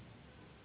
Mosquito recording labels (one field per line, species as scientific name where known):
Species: Anopheles gambiae s.s.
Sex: female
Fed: unfed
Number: one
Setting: insect culture